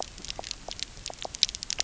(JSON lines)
{"label": "biophony, pulse", "recorder": "SoundTrap 300"}